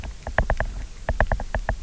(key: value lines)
label: biophony, knock
recorder: SoundTrap 300